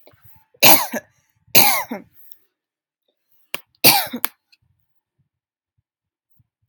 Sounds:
Cough